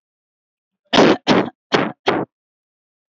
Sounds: Cough